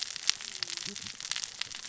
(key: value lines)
label: biophony, cascading saw
recorder: SoundTrap 600 or HydroMoth